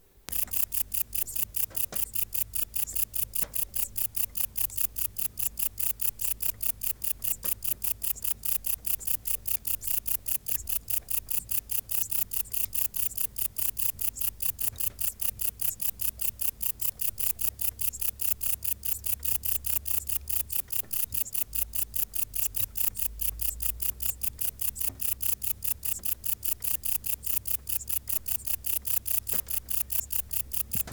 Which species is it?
Vichetia oblongicollis